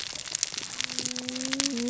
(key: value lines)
label: biophony, cascading saw
recorder: SoundTrap 600 or HydroMoth